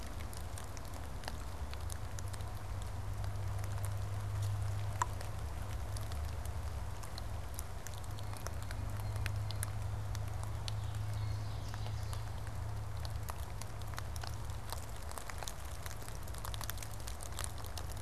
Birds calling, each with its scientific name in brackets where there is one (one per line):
Ovenbird (Seiurus aurocapilla)
Blue Jay (Cyanocitta cristata)